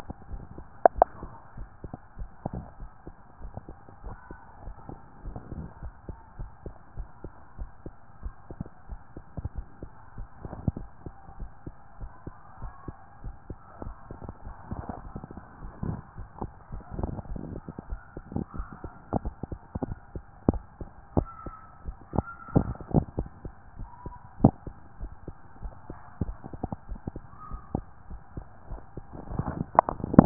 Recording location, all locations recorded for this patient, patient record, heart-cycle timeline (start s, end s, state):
tricuspid valve (TV)
aortic valve (AV)+pulmonary valve (PV)+tricuspid valve (TV)+mitral valve (MV)
#Age: Child
#Sex: Male
#Height: 151.0 cm
#Weight: 48.8 kg
#Pregnancy status: False
#Murmur: Absent
#Murmur locations: nan
#Most audible location: nan
#Systolic murmur timing: nan
#Systolic murmur shape: nan
#Systolic murmur grading: nan
#Systolic murmur pitch: nan
#Systolic murmur quality: nan
#Diastolic murmur timing: nan
#Diastolic murmur shape: nan
#Diastolic murmur grading: nan
#Diastolic murmur pitch: nan
#Diastolic murmur quality: nan
#Outcome: Abnormal
#Campaign: 2014 screening campaign
0.00	3.42	unannotated
3.42	3.52	S1
3.52	3.68	systole
3.68	3.76	S2
3.76	4.04	diastole
4.04	4.16	S1
4.16	4.30	systole
4.30	4.40	S2
4.40	4.64	diastole
4.64	4.76	S1
4.76	4.88	systole
4.88	4.98	S2
4.98	5.24	diastole
5.24	5.38	S1
5.38	5.54	systole
5.54	5.66	S2
5.66	5.82	diastole
5.82	5.94	S1
5.94	6.08	systole
6.08	6.16	S2
6.16	6.38	diastole
6.38	6.50	S1
6.50	6.64	systole
6.64	6.74	S2
6.74	6.96	diastole
6.96	7.08	S1
7.08	7.22	systole
7.22	7.32	S2
7.32	7.58	diastole
7.58	7.70	S1
7.70	7.84	systole
7.84	7.94	S2
7.94	8.22	diastole
8.22	8.34	S1
8.34	8.54	systole
8.54	8.64	S2
8.64	8.90	diastole
8.90	30.26	unannotated